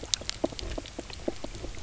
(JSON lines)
{"label": "biophony, knock croak", "recorder": "SoundTrap 300"}